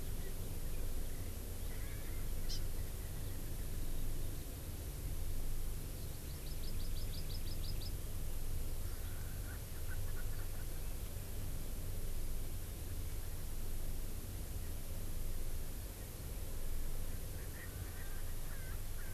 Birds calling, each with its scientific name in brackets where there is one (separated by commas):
Erckel's Francolin (Pternistis erckelii), Hawaii Amakihi (Chlorodrepanis virens)